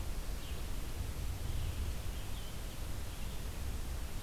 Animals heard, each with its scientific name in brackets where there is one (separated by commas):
Red-eyed Vireo (Vireo olivaceus)